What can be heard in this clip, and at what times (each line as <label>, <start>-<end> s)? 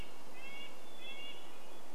Hermit Thrush song, 0-2 s
Red-breasted Nuthatch song, 0-2 s